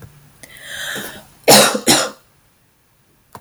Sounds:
Cough